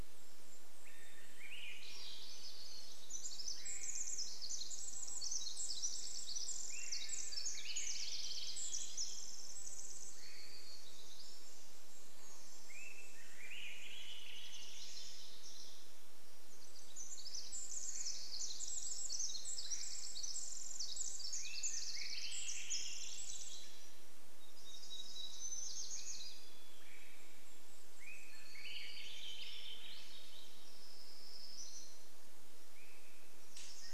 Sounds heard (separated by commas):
Pacific Wren song, Swainson's Thrush call, Common Raven call, Golden-crowned Kinglet song, insect buzz, warbler song, Swainson's Thrush song